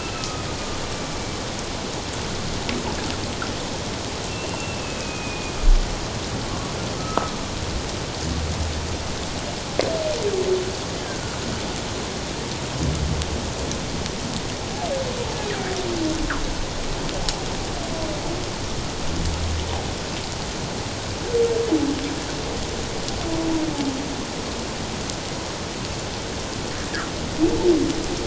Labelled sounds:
4.3	5.5	humpback whale, 2.4 to 2.8 kHz
7.0	7.4	humpback whale, 1.2 to 1.3 kHz

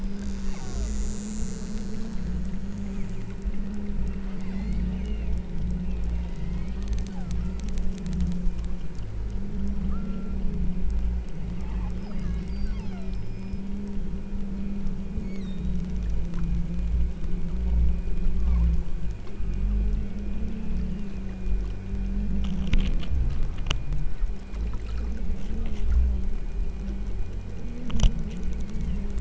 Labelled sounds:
0.4	1.1	killer whale, southern Alaska resident, 0.55 to 3.0 kHz
4.4	5.5	killer whale, southern Alaska resident, 1.8 to 8.0 kHz
6.1	7.5	killer whale, southern Alaska resident, 0.52 to 5.8 kHz
9.8	10.5	killer whale, southern Alaska resident, 0.94 to 1.7 kHz
11.6	13.7	killer whale, southern Alaska resident, 0.57 to 6.6 kHz
15.2	15.8	killer whale, southern Alaska resident, 1.7 to 8.0 kHz
20.8	21.5	killer whale, southern Alaska resident, 1.7 to 3.1 kHz
28.7	29.1	killer whale, southern Alaska resident, 2.1 to 3.3 kHz

